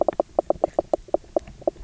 {"label": "biophony, knock croak", "recorder": "SoundTrap 300"}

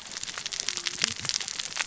{"label": "biophony, cascading saw", "recorder": "SoundTrap 600 or HydroMoth"}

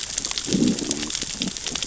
{"label": "biophony, growl", "recorder": "SoundTrap 600 or HydroMoth"}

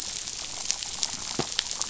{"label": "biophony", "recorder": "SoundTrap 500"}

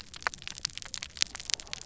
{"label": "biophony", "recorder": "SoundTrap 300"}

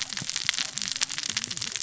{"label": "biophony, cascading saw", "recorder": "SoundTrap 600 or HydroMoth"}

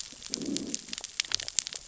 {"label": "biophony, growl", "recorder": "SoundTrap 600 or HydroMoth"}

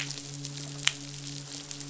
{"label": "biophony, midshipman", "recorder": "SoundTrap 500"}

